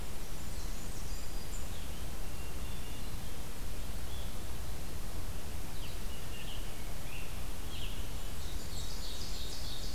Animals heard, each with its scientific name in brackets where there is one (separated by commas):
Hermit Thrush (Catharus guttatus), Ovenbird (Seiurus aurocapilla), Blue-headed Vireo (Vireo solitarius), Blackburnian Warbler (Setophaga fusca), Scarlet Tanager (Piranga olivacea)